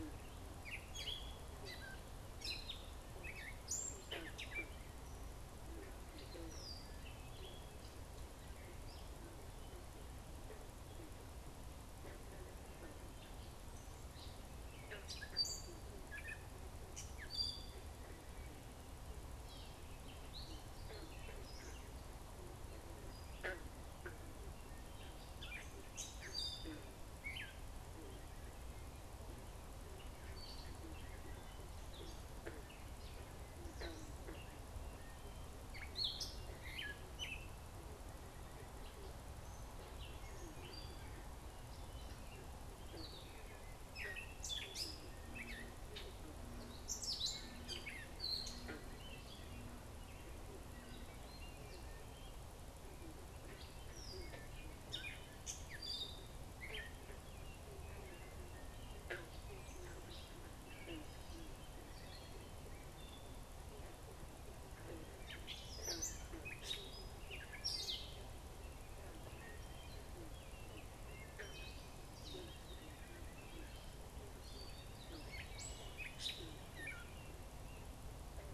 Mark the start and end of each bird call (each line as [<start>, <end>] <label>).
[0.00, 9.12] Gray Catbird (Dumetella carolinensis)
[14.02, 49.82] Gray Catbird (Dumetella carolinensis)
[50.72, 78.53] Gray Catbird (Dumetella carolinensis)
[71.22, 71.72] Wood Thrush (Hylocichla mustelina)